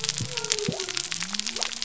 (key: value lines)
label: biophony
recorder: SoundTrap 300